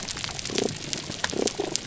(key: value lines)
label: biophony, damselfish
recorder: SoundTrap 300